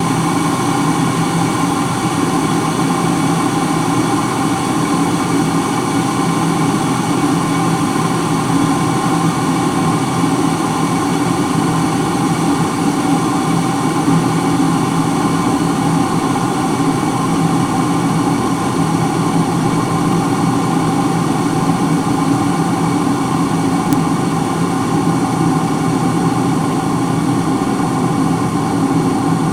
Is there more than one noise?
no